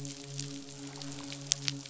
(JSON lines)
{"label": "biophony, midshipman", "recorder": "SoundTrap 500"}